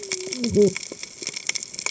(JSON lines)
{"label": "biophony, cascading saw", "recorder": "HydroMoth"}